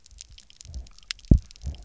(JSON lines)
{"label": "biophony, double pulse", "recorder": "SoundTrap 300"}